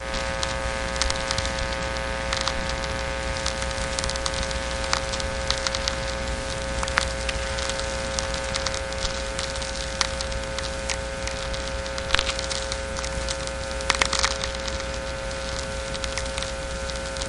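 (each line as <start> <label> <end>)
0.0 An old radio emits crackling static with a faint, distorted voice breaking through, creating a nostalgic and slightly eerie atmosphere. 17.3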